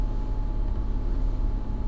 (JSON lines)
{"label": "anthrophony, boat engine", "recorder": "SoundTrap 300"}